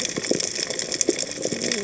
{"label": "biophony, cascading saw", "recorder": "HydroMoth"}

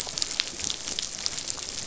{"label": "biophony, dolphin", "recorder": "SoundTrap 500"}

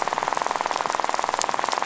{"label": "biophony, rattle", "recorder": "SoundTrap 500"}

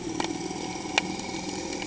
{"label": "anthrophony, boat engine", "recorder": "HydroMoth"}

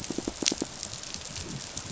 {"label": "biophony, pulse", "recorder": "SoundTrap 500"}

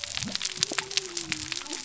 {"label": "biophony", "recorder": "SoundTrap 300"}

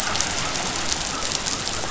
{"label": "biophony", "recorder": "SoundTrap 500"}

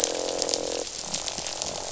{"label": "biophony, croak", "recorder": "SoundTrap 500"}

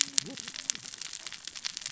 {"label": "biophony, cascading saw", "recorder": "SoundTrap 600 or HydroMoth"}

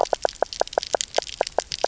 {"label": "biophony, knock croak", "recorder": "SoundTrap 300"}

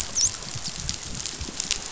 {"label": "biophony, dolphin", "recorder": "SoundTrap 500"}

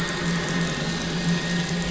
{"label": "anthrophony, boat engine", "recorder": "SoundTrap 500"}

